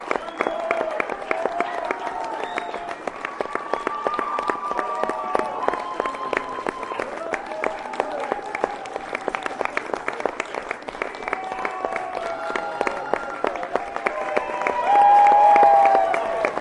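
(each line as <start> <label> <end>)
0.0 A crowd cheers and whoops loudly and continuously. 14.7
0.0 A crowd cheers loudly and continuously at a concert. 16.6
0.0 A crowd claps loudly and continuously at a concert. 16.6
14.7 A crowd cheering loudly at a concert. 16.6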